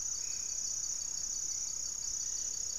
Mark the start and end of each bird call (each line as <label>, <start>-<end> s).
Thrush-like Wren (Campylorhynchus turdinus), 0.0-2.6 s
Black-faced Antthrush (Formicarius analis), 0.0-2.8 s
Gray-fronted Dove (Leptotila rufaxilla), 0.0-2.8 s
Hauxwell's Thrush (Turdus hauxwelli), 0.3-2.8 s